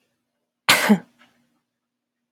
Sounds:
Cough